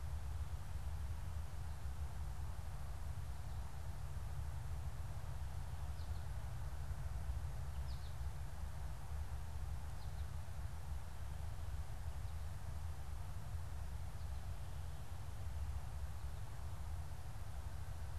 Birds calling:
American Goldfinch (Spinus tristis)

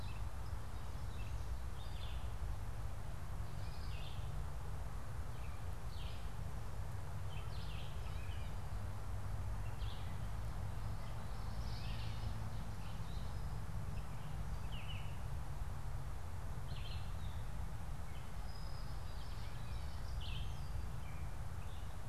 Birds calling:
Brown-headed Cowbird (Molothrus ater), Common Yellowthroat (Geothlypis trichas), Red-eyed Vireo (Vireo olivaceus), Gray Catbird (Dumetella carolinensis)

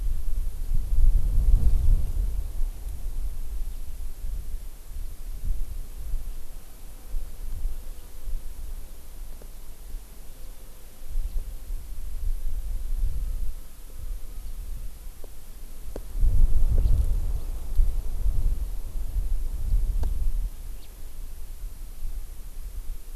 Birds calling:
House Finch (Haemorhous mexicanus)

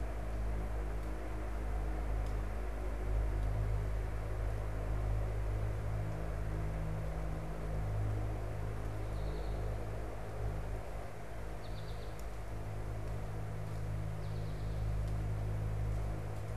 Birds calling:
American Goldfinch (Spinus tristis)

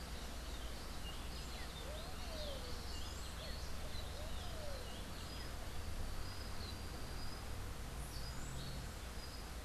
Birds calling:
Red-billed Pigeon (Patagioenas flavirostris)

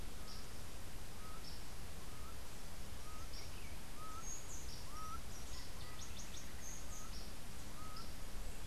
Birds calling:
Yellow Warbler (Setophaga petechia), Laughing Falcon (Herpetotheres cachinnans), House Wren (Troglodytes aedon), Buff-throated Saltator (Saltator maximus)

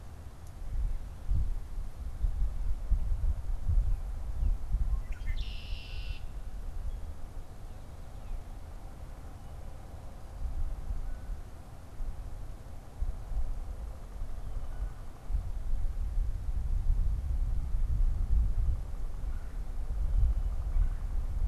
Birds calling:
Red-winged Blackbird (Agelaius phoeniceus), Red-bellied Woodpecker (Melanerpes carolinus)

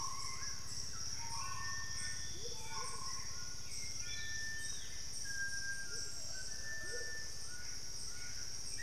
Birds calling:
White-throated Toucan (Ramphastos tucanus), Starred Wood-Quail (Odontophorus stellatus), Amazonian Motmot (Momotus momota), Screaming Piha (Lipaugus vociferans), Hauxwell's Thrush (Turdus hauxwelli)

